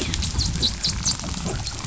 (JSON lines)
{"label": "biophony, dolphin", "recorder": "SoundTrap 500"}